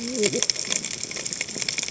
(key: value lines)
label: biophony, cascading saw
recorder: HydroMoth